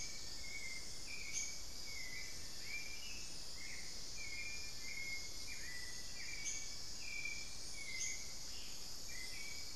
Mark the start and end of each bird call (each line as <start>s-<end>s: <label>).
0.0s-7.1s: Long-billed Woodcreeper (Nasica longirostris)
0.0s-9.8s: Hauxwell's Thrush (Turdus hauxwelli)
0.0s-9.8s: unidentified bird
8.4s-8.9s: Ash-throated Gnateater (Conopophaga peruviana)